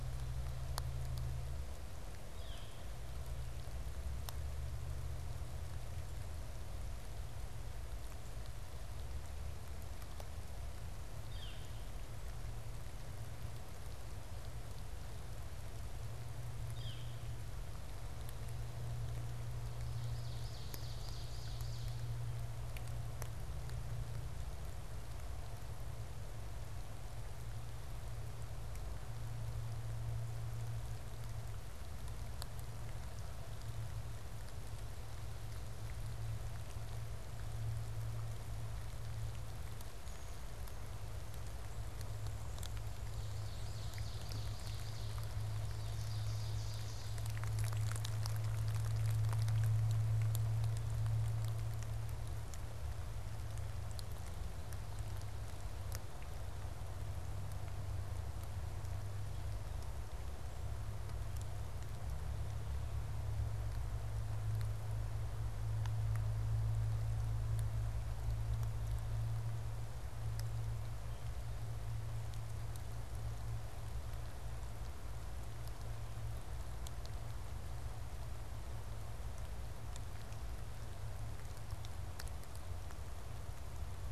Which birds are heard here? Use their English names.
Northern Flicker, Ovenbird, Black-capped Chickadee